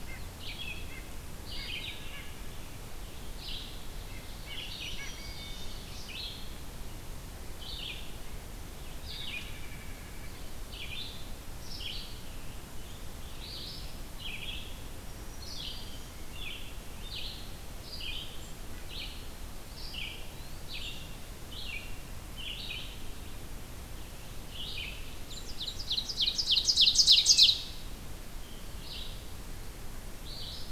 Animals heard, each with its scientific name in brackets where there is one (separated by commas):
Eastern Wood-Pewee (Contopus virens), Red-eyed Vireo (Vireo olivaceus), Ovenbird (Seiurus aurocapilla), Wood Thrush (Hylocichla mustelina), White-breasted Nuthatch (Sitta carolinensis), Scarlet Tanager (Piranga olivacea), Black-throated Green Warbler (Setophaga virens)